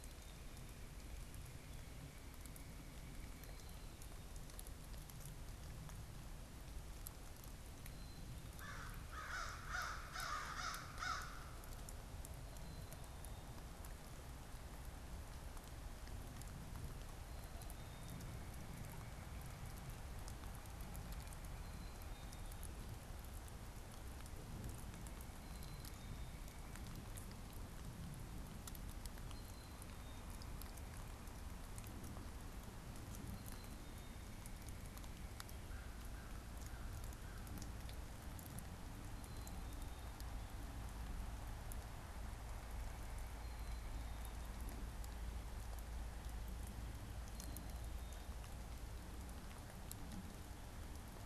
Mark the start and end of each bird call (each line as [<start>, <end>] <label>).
[0.00, 3.80] unidentified bird
[7.80, 9.00] Black-capped Chickadee (Poecile atricapillus)
[8.50, 11.90] American Crow (Corvus brachyrhynchos)
[12.30, 13.80] Black-capped Chickadee (Poecile atricapillus)
[17.30, 18.30] Black-capped Chickadee (Poecile atricapillus)
[17.80, 22.70] unidentified bird
[21.60, 22.60] Black-capped Chickadee (Poecile atricapillus)
[24.30, 27.10] unidentified bird
[25.20, 26.40] Black-capped Chickadee (Poecile atricapillus)
[29.10, 30.40] Black-capped Chickadee (Poecile atricapillus)
[33.20, 34.10] Black-capped Chickadee (Poecile atricapillus)
[33.60, 35.40] unidentified bird
[35.50, 37.60] American Crow (Corvus brachyrhynchos)
[39.00, 40.20] Black-capped Chickadee (Poecile atricapillus)
[43.40, 44.40] Black-capped Chickadee (Poecile atricapillus)
[47.10, 48.30] Black-capped Chickadee (Poecile atricapillus)